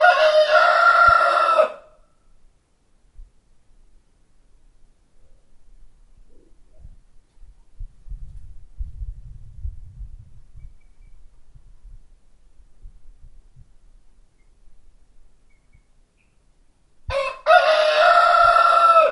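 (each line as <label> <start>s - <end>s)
A rooster crows. 0.0s - 2.0s
A quiet, muffled, low-frequency noise. 7.7s - 10.9s
A rooster crows. 17.0s - 19.1s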